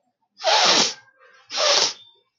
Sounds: Sniff